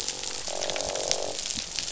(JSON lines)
{"label": "biophony, croak", "recorder": "SoundTrap 500"}